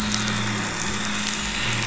{"label": "anthrophony, boat engine", "recorder": "SoundTrap 500"}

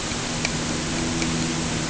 {"label": "anthrophony, boat engine", "recorder": "HydroMoth"}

